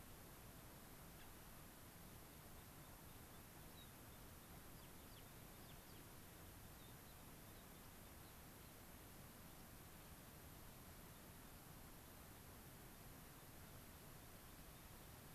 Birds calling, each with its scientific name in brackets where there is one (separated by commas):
American Pipit (Anthus rubescens), Gray-crowned Rosy-Finch (Leucosticte tephrocotis), Dusky Flycatcher (Empidonax oberholseri)